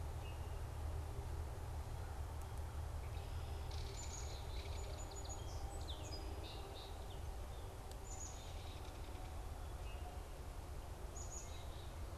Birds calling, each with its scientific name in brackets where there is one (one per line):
Black-capped Chickadee (Poecile atricapillus)
Belted Kingfisher (Megaceryle alcyon)
Song Sparrow (Melospiza melodia)